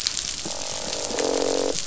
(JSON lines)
{"label": "biophony, croak", "recorder": "SoundTrap 500"}